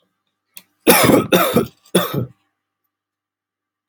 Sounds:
Cough